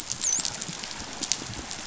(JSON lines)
{"label": "biophony, dolphin", "recorder": "SoundTrap 500"}